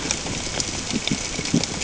{"label": "ambient", "recorder": "HydroMoth"}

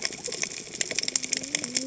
{"label": "biophony, cascading saw", "recorder": "HydroMoth"}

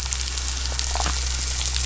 {"label": "anthrophony, boat engine", "recorder": "SoundTrap 500"}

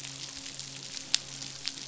{"label": "biophony, midshipman", "recorder": "SoundTrap 500"}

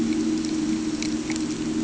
{"label": "anthrophony, boat engine", "recorder": "HydroMoth"}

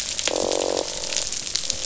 {"label": "biophony, croak", "recorder": "SoundTrap 500"}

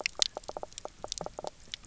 {"label": "biophony, knock croak", "recorder": "SoundTrap 300"}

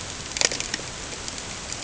{"label": "ambient", "recorder": "HydroMoth"}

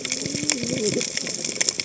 {"label": "biophony, cascading saw", "recorder": "HydroMoth"}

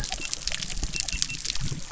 {"label": "biophony", "recorder": "SoundTrap 300"}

